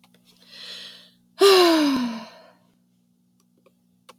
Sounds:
Sigh